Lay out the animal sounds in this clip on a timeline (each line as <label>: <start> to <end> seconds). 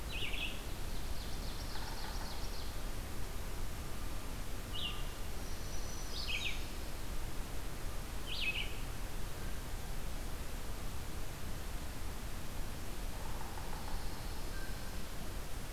Red-eyed Vireo (Vireo olivaceus): 0.0 to 8.9 seconds
Ovenbird (Seiurus aurocapilla): 0.5 to 3.0 seconds
Yellow-bellied Sapsucker (Sphyrapicus varius): 1.5 to 2.3 seconds
Black-throated Green Warbler (Setophaga virens): 5.1 to 7.2 seconds
Yellow-bellied Sapsucker (Sphyrapicus varius): 12.9 to 14.0 seconds
Pine Warbler (Setophaga pinus): 13.3 to 15.2 seconds
Blue Jay (Cyanocitta cristata): 14.4 to 15.0 seconds